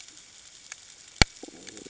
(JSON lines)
{"label": "ambient", "recorder": "HydroMoth"}